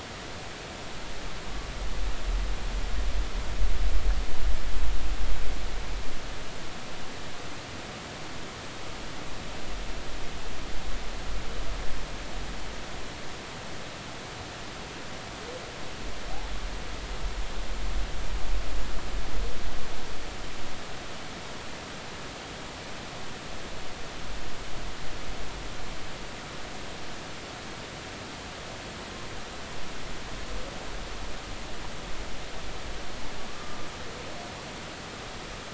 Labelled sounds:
33.5	33.8	humpback whale, 1.0 to 1.3 kHz

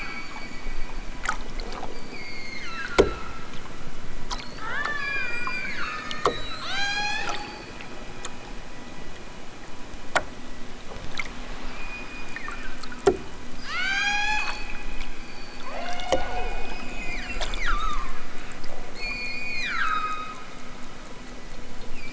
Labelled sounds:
1.8	3.2	killer whale, southern Alaska resident, 0.92 to 6.7 kHz
4.5	7.7	killer whale, southern Alaska resident, 0.50 to 8.0 kHz
11.5	12.9	killer whale, southern Alaska resident, 0.78 to 5.3 kHz
13.4	14.7	killer whale, southern Alaska resident, 0.55 to 8.0 kHz
15.6	18.2	killer whale, southern Alaska resident, 0.46 to 8.0 kHz
18.9	20.5	killer whale, southern Alaska resident, 0.83 to 8.0 kHz

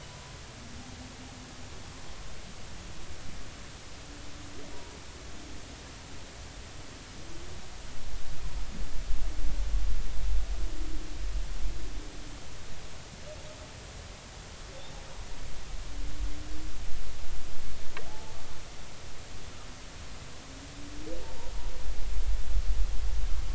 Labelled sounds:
0.1	0.4	humpback whale, 0.93 to 1.1 kHz
18.1	18.4	humpback whale, 0.80 to 0.93 kHz
21.2	21.5	humpback whale, 0.86 to 0.99 kHz

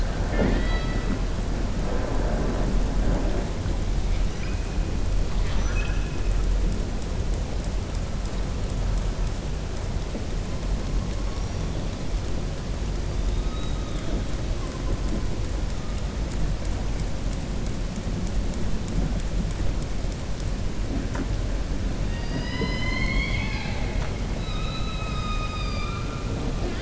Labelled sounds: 0.0	1.2	killer whale, southern resident, 0.24 to 4.7 kHz
5.3	6.2	killer whale, southern resident, 1.1 to 6.0 kHz
13.3	14.1	killer whale, southern resident, 3.2 to 4.0 kHz
22.0	24.1	killer whale, southern resident, 0.29 to 5.3 kHz

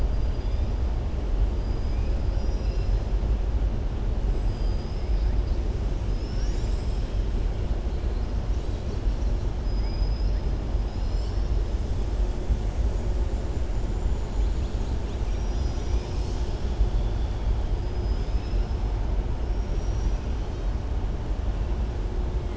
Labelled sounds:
2.2	3.0	killer whale, southern resident, 2.6 to 5.7 kHz
4.4	5.3	killer whale, southern resident, 3.8 to 5.5 kHz
9.6	10.4	killer whale, southern resident, 4.2 to 5.5 kHz
17.8	18.7	killer whale, southern resident, 4.2 to 5.5 kHz
19.5	20.2	killer whale, southern resident, 4.9 to 6.9 kHz

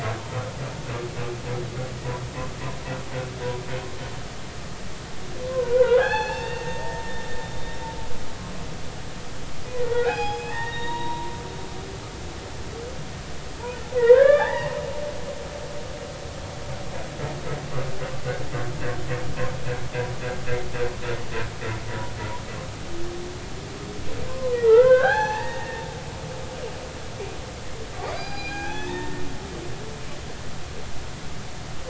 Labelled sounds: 5.5	7.0	humpback whale, 0.80 to 6.5 kHz
9.8	11.3	humpback whale, 0.80 to 5.1 kHz
13.9	15.7	humpback whale, 0.80 to 3.6 kHz
24.3	25.8	humpback whale, 0.80 to 6.1 kHz
28.0	29.2	humpback whale, 0.80 to 5.0 kHz

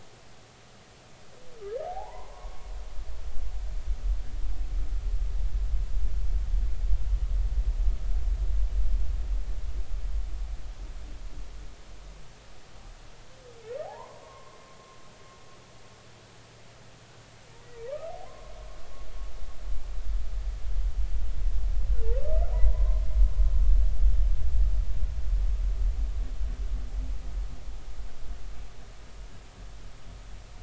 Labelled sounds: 1.8	2.7	humpback whale, 0.80 to 1.2 kHz
13.8	14.6	humpback whale, 0.80 to 1.1 kHz
18.3	18.5	humpback whale, 0.99 to 1.1 kHz
22.5	23.0	humpback whale, 0.90 to 1.1 kHz

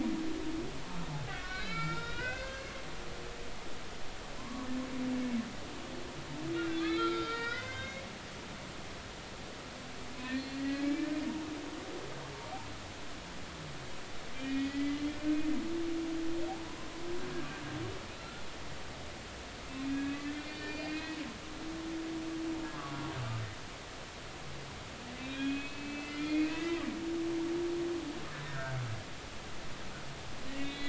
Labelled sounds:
1.3	2.7	humpback whale, 1.3 to 5.2 kHz
4.4	4.7	humpback whale, 0.96 to 1.2 kHz
6.8	8.1	humpback whale, 1.2 to 5.3 kHz
10.3	11.1	humpback whale, 1.9 to 4.5 kHz
14.3	15.0	humpback whale, 1.8 to 3.4 kHz
18.2	18.4	humpback whale, 1.3 to 1.4 kHz
19.8	21.2	humpback whale, 1.6 to 4.7 kHz
25.2	26.8	humpback whale, 1.6 to 4.4 kHz
28.5	28.7	humpback whale, 1.3 to 1.7 kHz
30.5	30.8	humpback whale, 1.8 to 2.8 kHz

